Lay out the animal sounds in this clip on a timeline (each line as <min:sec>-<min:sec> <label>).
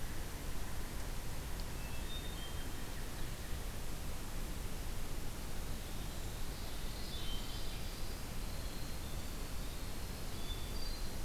0:01.8-0:02.6 Hermit Thrush (Catharus guttatus)
0:05.6-0:10.6 Winter Wren (Troglodytes hiemalis)
0:07.0-0:07.8 Hermit Thrush (Catharus guttatus)
0:10.3-0:11.2 Hermit Thrush (Catharus guttatus)